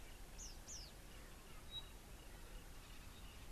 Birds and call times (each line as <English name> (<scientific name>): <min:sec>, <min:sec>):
Red-fronted Prinia (Prinia rufifrons): 0:00.5
Pygmy Batis (Batis perkeo): 0:01.8